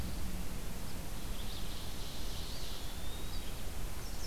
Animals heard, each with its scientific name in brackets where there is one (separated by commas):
Ovenbird (Seiurus aurocapilla), Red-eyed Vireo (Vireo olivaceus), Eastern Wood-Pewee (Contopus virens)